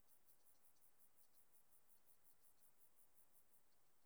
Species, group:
Chorthippus vagans
Orthoptera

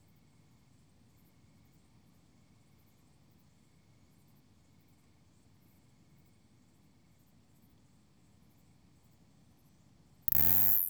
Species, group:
Isophya plevnensis
Orthoptera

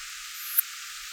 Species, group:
Poecilimon affinis
Orthoptera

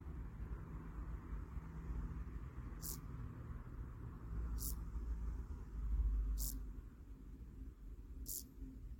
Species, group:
Chorthippus brunneus
Orthoptera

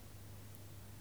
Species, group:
Ancistrura nigrovittata
Orthoptera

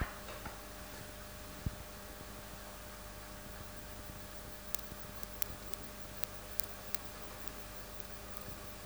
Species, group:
Poecilimon mytilenensis
Orthoptera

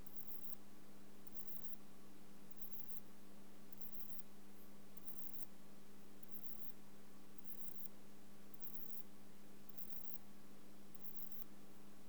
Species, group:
Ephippigerida areolaria
Orthoptera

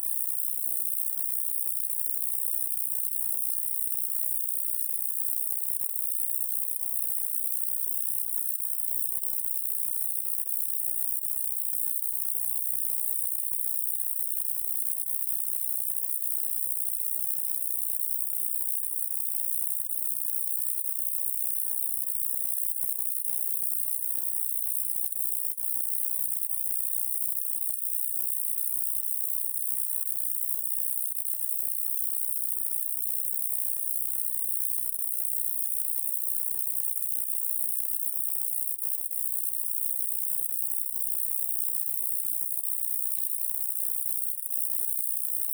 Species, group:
Roeseliana ambitiosa
Orthoptera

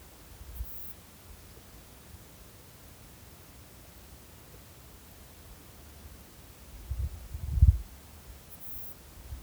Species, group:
Ephippiger diurnus
Orthoptera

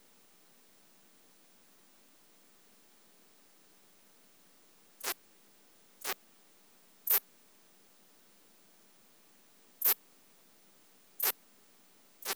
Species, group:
Ephippiger terrestris
Orthoptera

